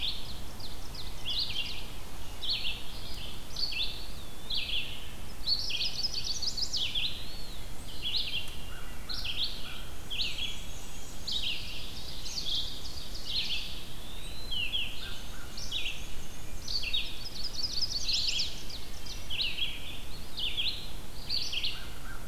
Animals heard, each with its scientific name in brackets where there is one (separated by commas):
Eastern Wood-Pewee (Contopus virens), Black-and-white Warbler (Mniotilta varia), Chestnut-sided Warbler (Setophaga pensylvanica), Red-eyed Vireo (Vireo olivaceus), Ovenbird (Seiurus aurocapilla), American Crow (Corvus brachyrhynchos)